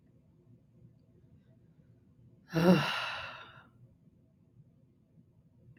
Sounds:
Sigh